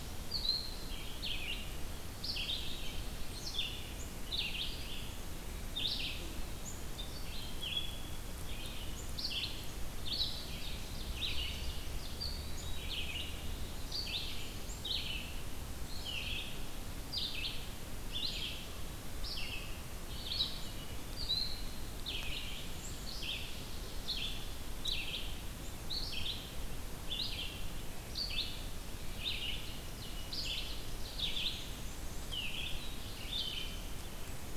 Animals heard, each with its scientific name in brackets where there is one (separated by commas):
Black-throated Blue Warbler (Setophaga caerulescens), Ovenbird (Seiurus aurocapilla), Red-eyed Vireo (Vireo olivaceus), Black-and-white Warbler (Mniotilta varia)